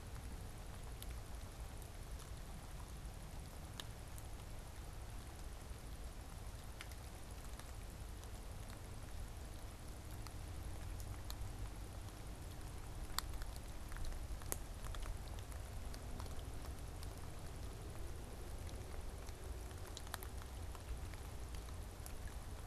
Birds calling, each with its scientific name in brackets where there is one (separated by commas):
unidentified bird